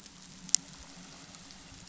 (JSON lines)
{"label": "anthrophony, boat engine", "recorder": "SoundTrap 500"}